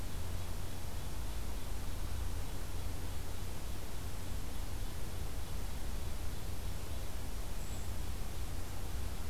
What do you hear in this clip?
Brown Creeper